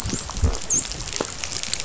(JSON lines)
{"label": "biophony, dolphin", "recorder": "SoundTrap 500"}